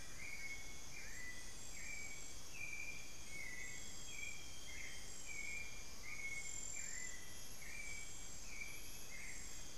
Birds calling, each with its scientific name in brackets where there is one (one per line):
Amazonian Grosbeak (Cyanoloxia rothschildii)
Screaming Piha (Lipaugus vociferans)
Hauxwell's Thrush (Turdus hauxwelli)